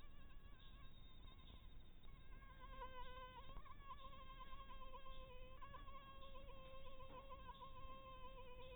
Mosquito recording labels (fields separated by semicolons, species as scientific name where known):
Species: Anopheles maculatus; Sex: female; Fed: blood-fed; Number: one; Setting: cup